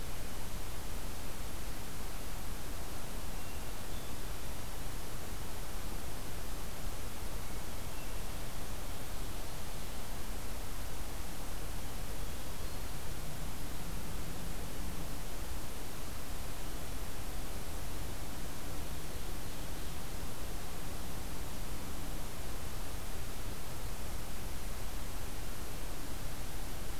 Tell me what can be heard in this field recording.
Hermit Thrush, Ovenbird